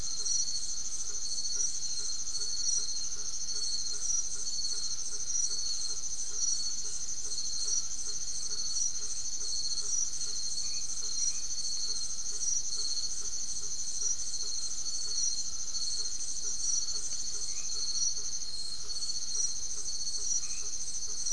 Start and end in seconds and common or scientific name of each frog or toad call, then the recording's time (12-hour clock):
0.0	21.3	blacksmith tree frog
0.0	21.3	Crubixa snouted tree frog
10.5	11.8	white-edged tree frog
17.3	17.9	white-edged tree frog
20.4	20.8	white-edged tree frog
8:30pm